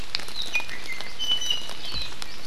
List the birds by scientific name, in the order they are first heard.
Drepanis coccinea, Loxops coccineus